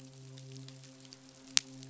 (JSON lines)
{"label": "biophony, midshipman", "recorder": "SoundTrap 500"}